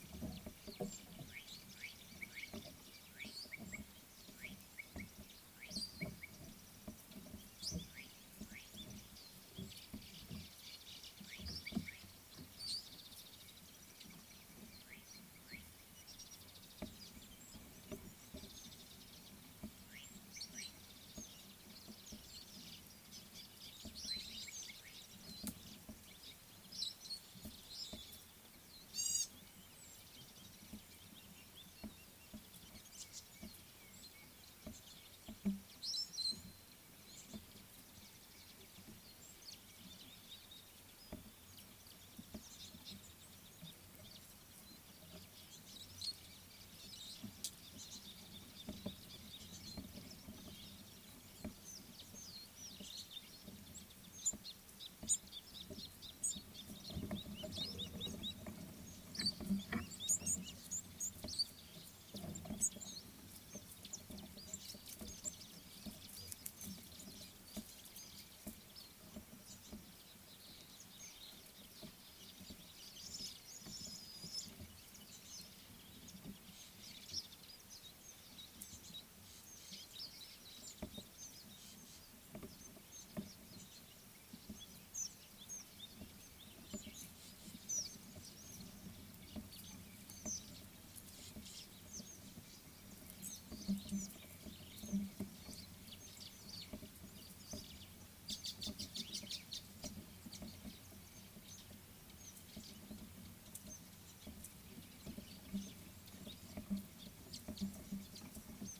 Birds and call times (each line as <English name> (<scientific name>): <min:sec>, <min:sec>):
Slate-colored Boubou (Laniarius funebris): 0:02.3
Meyer's Parrot (Poicephalus meyeri): 0:05.8, 0:20.6, 0:26.8, 0:36.0, 0:46.0
White-browed Sparrow-Weaver (Plocepasser mahali): 0:10.7
Mariqua Sunbird (Cinnyris mariquensis): 0:18.8
Gray-backed Camaroptera (Camaroptera brevicaudata): 0:29.1
Scarlet-chested Sunbird (Chalcomitra senegalensis): 0:55.8
Red-cheeked Cordonbleu (Uraeginthus bengalus): 0:56.3, 1:02.7
Superb Starling (Lamprotornis superbus): 1:13.9
Chestnut Weaver (Ploceus rubiginosus): 1:38.9